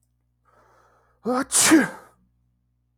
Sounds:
Sneeze